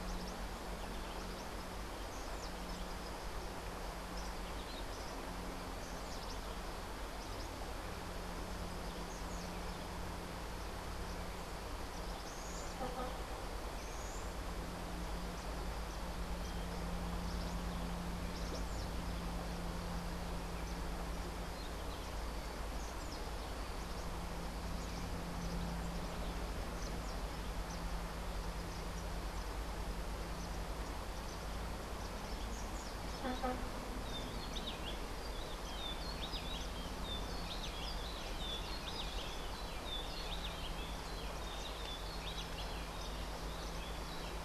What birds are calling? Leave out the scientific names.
Buff-throated Saltator, Rufous-breasted Wren